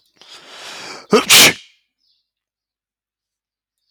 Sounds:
Sneeze